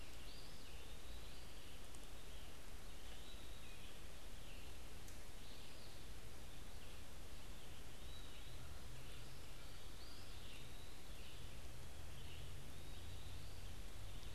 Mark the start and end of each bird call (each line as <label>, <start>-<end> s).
Eastern Wood-Pewee (Contopus virens), 0.0-14.3 s
unidentified bird, 0.0-14.3 s